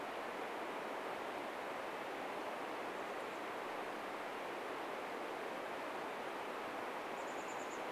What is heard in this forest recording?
Chestnut-backed Chickadee call